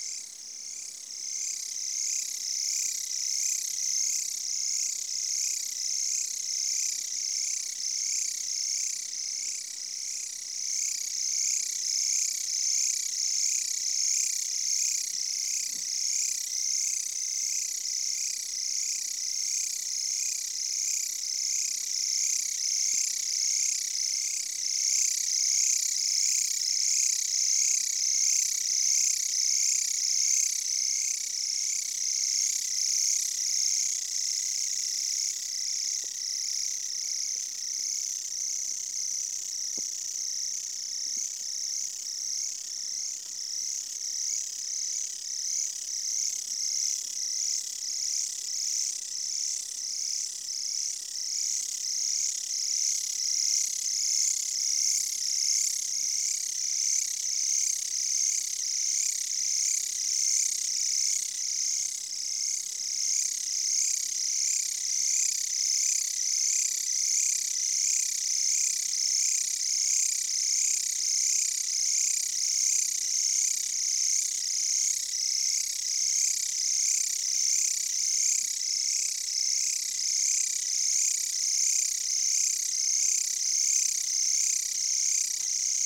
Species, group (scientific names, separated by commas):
Mecopoda elongata, Orthoptera